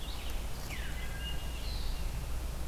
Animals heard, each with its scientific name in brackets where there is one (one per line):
Veery (Catharus fuscescens)
Red-eyed Vireo (Vireo olivaceus)